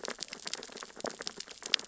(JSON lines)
{"label": "biophony, sea urchins (Echinidae)", "recorder": "SoundTrap 600 or HydroMoth"}